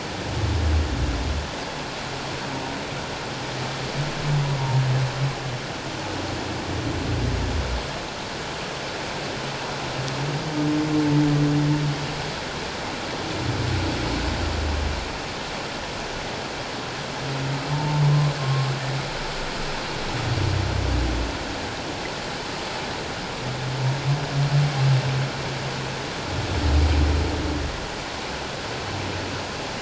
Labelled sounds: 17.7	18.0	humpback whale, 0.81 to 0.94 kHz
18.4	18.7	humpback whale, 1.0 to 1.2 kHz

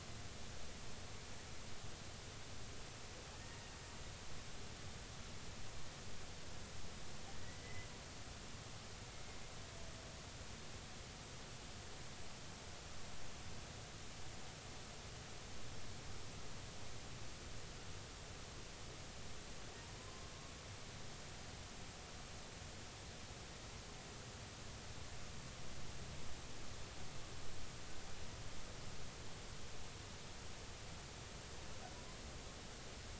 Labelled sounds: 7.6	7.9	humpback whale, 2.0 to 2.1 kHz
20.0	20.3	humpback whale, 0.99 to 1.1 kHz

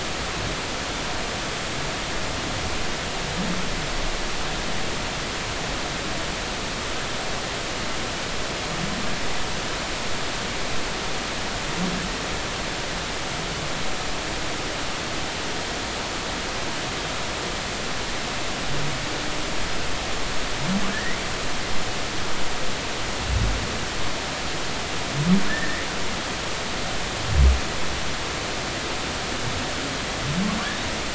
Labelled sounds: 20.9	21.2	humpback whale, 1.6 to 2.2 kHz
25.5	25.8	humpback whale, 1.6 to 2.0 kHz

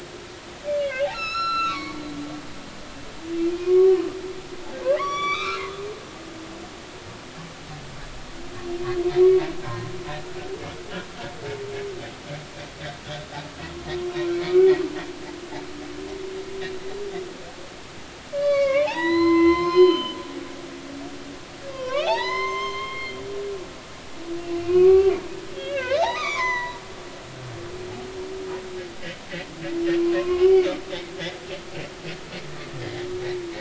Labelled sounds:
1.1	2.0	humpback whale, 0.99 to 8.0 kHz
3.4	4.0	humpback whale, 0.99 to 2.5 kHz
5.0	6.4	humpback whale, 0.99 to 5.9 kHz
9.7	9.9	humpback whale, 0.93 to 1.1 kHz
14.0	14.7	humpback whale, 0.99 to 2.4 kHz
18.3	20.2	humpback whale, 0.80 to 6.4 kHz
21.7	23.2	humpback whale, 0.80 to 6.4 kHz
24.6	25.2	humpback whale, 1.1 to 2.9 kHz
25.5	26.8	humpback whale, 0.90 to 6.1 kHz
30.2	30.7	humpback whale, 2.1 to 2.6 kHz
31.0	31.5	humpback whale, 0.99 to 1.2 kHz

